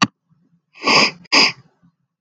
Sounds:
Sniff